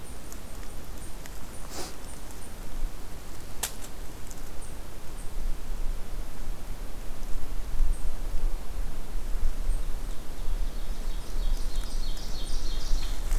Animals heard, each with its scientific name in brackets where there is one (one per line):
Ovenbird (Seiurus aurocapilla)